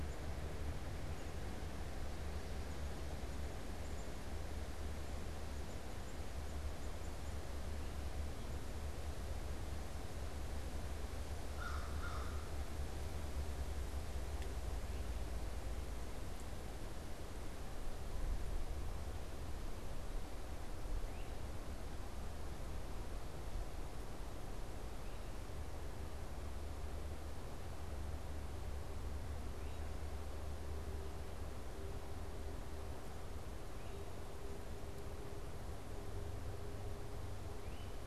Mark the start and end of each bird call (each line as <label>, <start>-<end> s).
unidentified bird, 0.0-7.7 s
American Crow (Corvus brachyrhynchos), 11.3-12.7 s
Great Crested Flycatcher (Myiarchus crinitus), 21.0-21.4 s
Great Crested Flycatcher (Myiarchus crinitus), 29.4-38.0 s